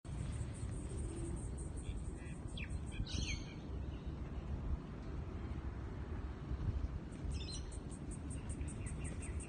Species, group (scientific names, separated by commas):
Yoyetta celis, Cicadidae